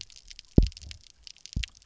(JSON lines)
{"label": "biophony, double pulse", "recorder": "SoundTrap 300"}